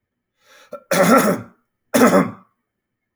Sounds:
Throat clearing